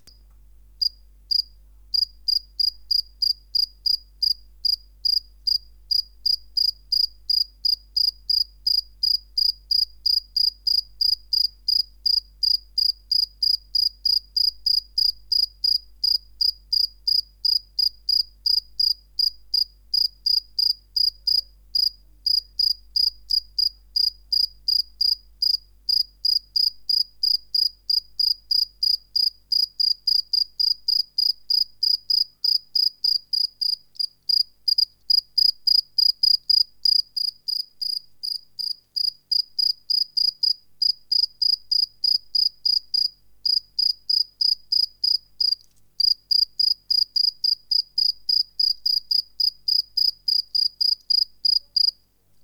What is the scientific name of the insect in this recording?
Gryllus bimaculatus